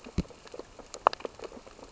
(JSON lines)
{"label": "biophony, sea urchins (Echinidae)", "recorder": "SoundTrap 600 or HydroMoth"}